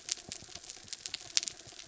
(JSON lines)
{"label": "anthrophony, mechanical", "recorder": "SoundTrap 300"}